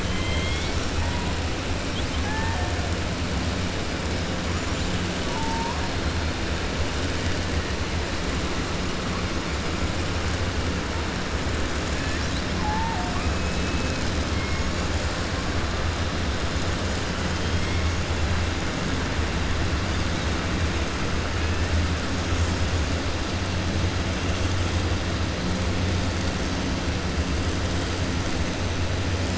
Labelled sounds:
0.0	0.9	killer whale, 2.1 to 6.6 kHz

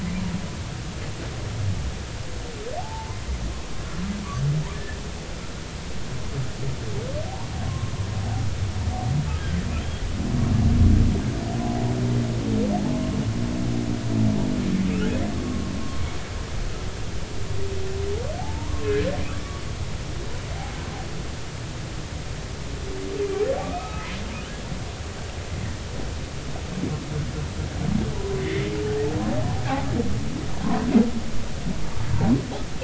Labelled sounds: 2.8	3.2	humpback whale, 0.80 to 1.1 kHz
7.7	7.9	humpback whale, 0.99 to 1.2 kHz
9.8	10.0	humpback whale, 3.1 to 3.3 kHz
14.9	15.7	humpback whale, 1.0 to 2.0 kHz
18.4	18.9	humpback whale, 0.80 to 1.2 kHz
23.2	24.1	humpback whale, 1.1 to 2.6 kHz
28.1	28.7	humpback whale, 0.83 to 2.2 kHz
30.6	30.9	humpback whale, 0.93 to 1.1 kHz

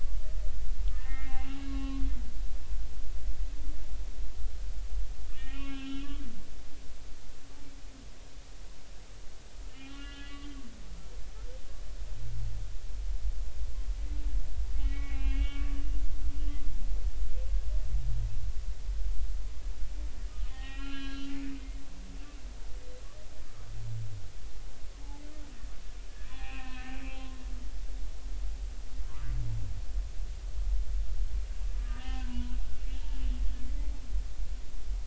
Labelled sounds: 0.9	2.0	humpback whale, 0.80 to 2.9 kHz
5.3	6.2	humpback whale, 1.0 to 3.9 kHz
9.7	10.5	humpback whale, 1.3 to 3.5 kHz
14.8	15.7	humpback whale, 0.80 to 3.4 kHz
20.5	21.4	humpback whale, 0.80 to 4.2 kHz
26.3	27.0	humpback whale, 0.80 to 2.9 kHz
29.1	29.3	humpback whale, 0.90 to 1.4 kHz
31.8	32.5	humpback whale, 0.93 to 3.2 kHz

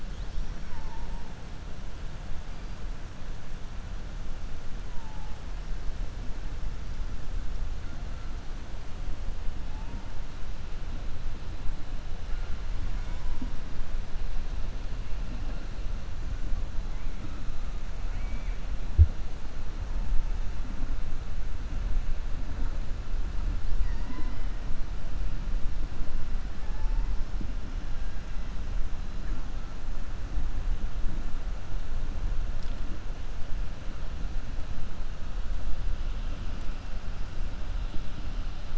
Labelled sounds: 18.0	18.6	killer whale, 1.4 to 3.0 kHz

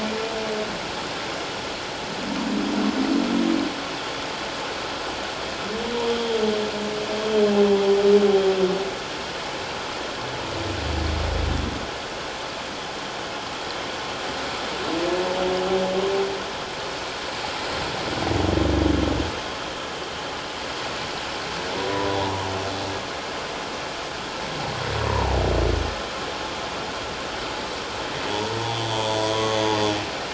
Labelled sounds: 6.0	6.4	humpback whale, 3.1 to 3.3 kHz
21.9	22.2	humpback whale, 0.88 to 1.0 kHz
28.3	29.6	humpback whale, 0.81 to 3.6 kHz

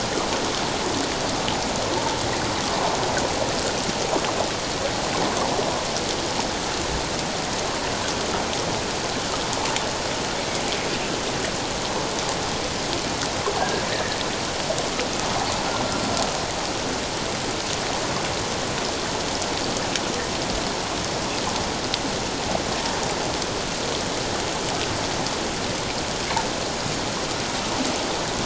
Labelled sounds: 13.6	14.2	humpback whale, 1.6 to 1.9 kHz

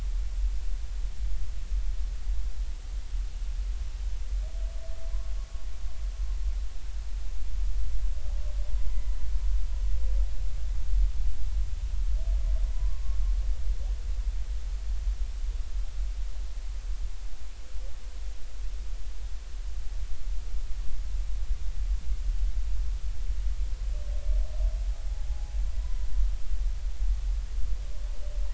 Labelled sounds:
8.9	9.2	humpback whale, 2.0 to 2.1 kHz
12.7	13.0	humpback whale, 0.96 to 1.2 kHz
25.3	25.5	humpback whale, 0.80 to 0.90 kHz

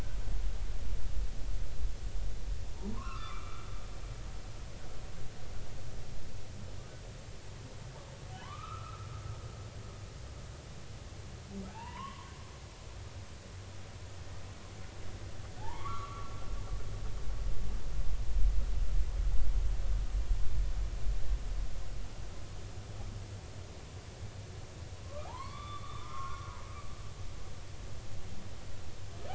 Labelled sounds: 2.9	3.7	humpback whale, 0.90 to 2.8 kHz
8.3	9.1	humpback whale, 0.86 to 3.2 kHz
11.7	12.3	humpback whale, 0.80 to 3.2 kHz
15.6	16.3	humpback whale, 0.80 to 1.4 kHz
25.0	26.7	humpback whale, 0.80 to 3.6 kHz

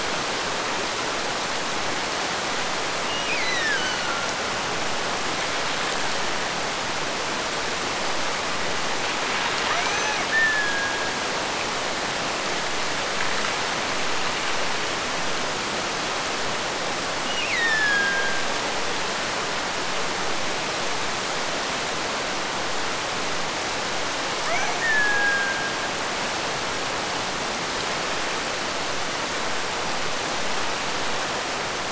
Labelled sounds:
3.0	4.3	killer whale, Bigg's (transient), Gulf of Alaska transient, 1.3 to 6.3 kHz
9.7	11.4	killer whale, Bigg's (transient), Gulf of Alaska transient, 0.49 to 6.2 kHz
17.3	18.7	killer whale, Bigg's (transient), Gulf of Alaska transient, 1.5 to 5.5 kHz
24.5	26.0	killer whale, Bigg's (transient), Gulf of Alaska transient, 0.41 to 2.4 kHz

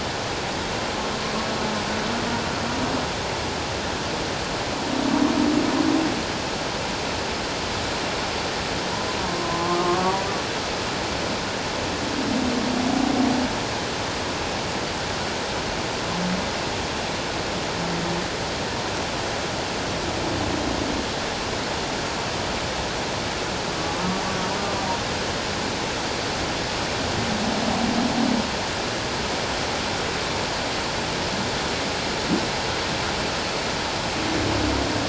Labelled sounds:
9.3	10.2	humpback whale, 0.97 to 1.2 kHz

